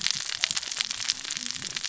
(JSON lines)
{"label": "biophony, cascading saw", "recorder": "SoundTrap 600 or HydroMoth"}